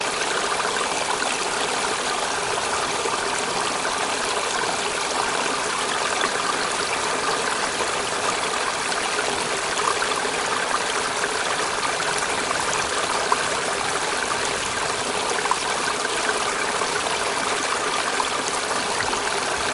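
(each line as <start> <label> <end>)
0.0 A gentle stream flows steadily with bubbling and trickling water sounds, creating a relaxing natural ambiance. 19.7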